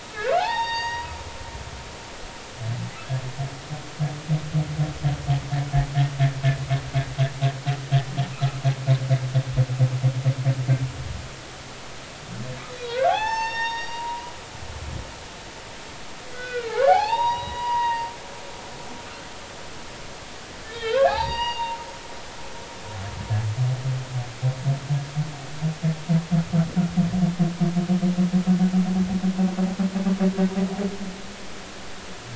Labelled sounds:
0.3	1.1	humpback whale, 0.80 to 5.7 kHz
8.3	8.6	humpback whale, 1.2 to 1.4 kHz
12.7	14.2	humpback whale, 0.80 to 6.5 kHz
16.3	18.1	humpback whale, 0.80 to 5.8 kHz
20.6	21.8	humpback whale, 0.80 to 4.8 kHz

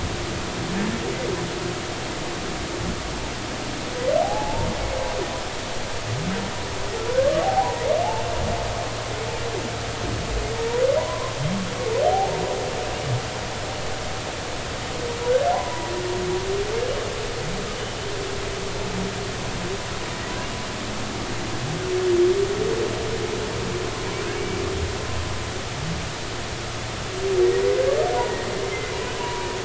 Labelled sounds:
4.2	4.7	humpback whale, 0.80 to 0.99 kHz
7.2	7.9	humpback whale, 0.80 to 1.3 kHz
11.0	11.4	humpback whale, 0.90 to 1.1 kHz
12.0	12.4	humpback whale, 0.80 to 0.96 kHz
15.5	15.9	humpback whale, 0.80 to 1.1 kHz
24.4	24.6	humpback whale, 2.2 to 2.4 kHz
28.7	29.5	humpback whale, 0.90 to 2.6 kHz

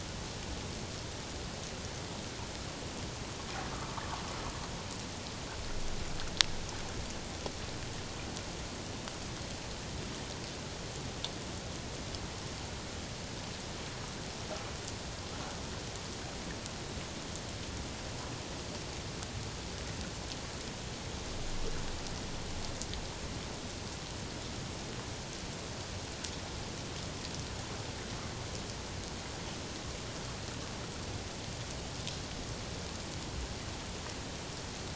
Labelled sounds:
3.7	4.0	water noise, 1.1 to 1.3 kHz

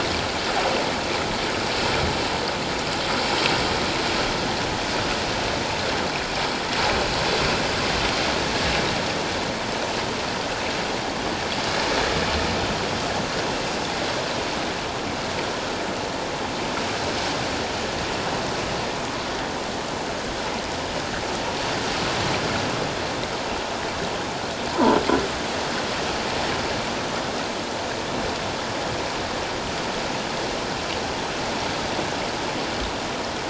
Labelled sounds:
24.7	25.0	croaking sound likely from a nearby submerged object, 0.84 to 1.1 kHz

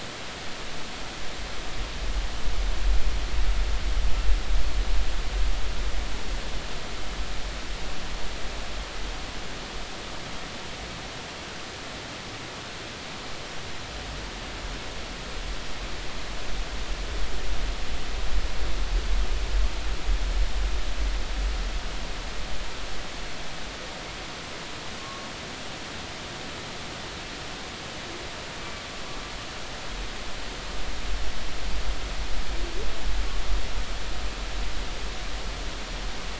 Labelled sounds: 28.6	28.8	humpback whale, 2.2 to 2.4 kHz

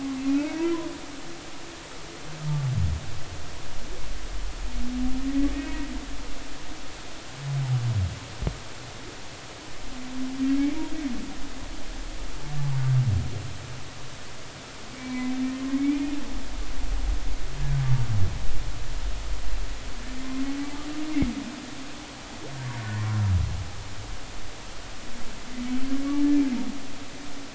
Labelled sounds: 0.2	0.7	humpback whale, 0.86 to 2.7 kHz
5.5	5.9	humpback whale, 1.8 to 2.6 kHz
15.0	16.1	humpback whale, 2.1 to 2.5 kHz
22.8	23.1	humpback whale, 1.7 to 1.9 kHz

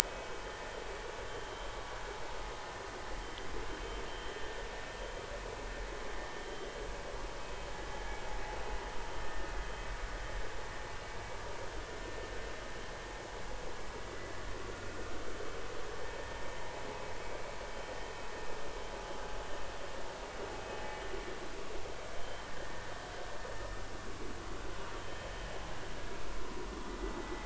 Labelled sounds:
0.0	0.3	vessel noise, 2.5 to 2.6 kHz
25.0	25.3	vessel noise, 3.1 to 3.2 kHz

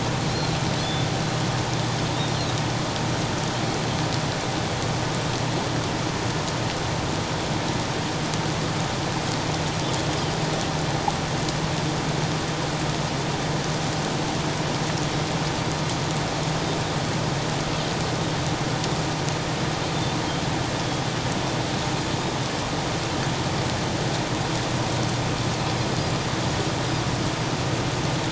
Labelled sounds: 0.8	1.1	Pacific white-sided dolphin, 3.3 to 3.6 kHz
2.3	2.5	Pacific white-sided dolphin, 3.9 to 4.3 kHz

